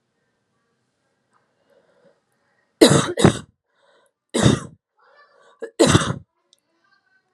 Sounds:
Cough